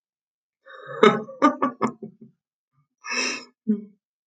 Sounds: Laughter